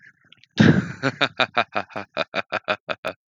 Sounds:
Laughter